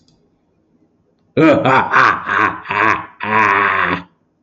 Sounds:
Laughter